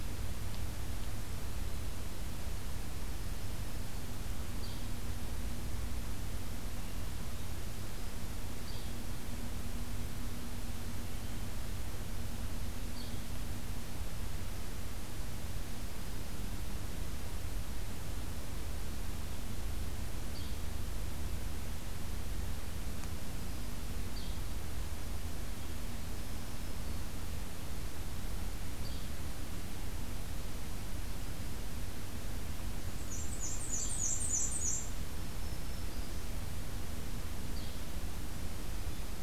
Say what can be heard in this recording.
Yellow-bellied Flycatcher, Black-throated Green Warbler, Black-and-white Warbler